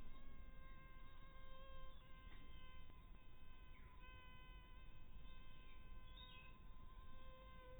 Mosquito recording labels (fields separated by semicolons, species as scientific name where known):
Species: mosquito; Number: one; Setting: cup